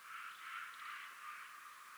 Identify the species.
Leptophyes punctatissima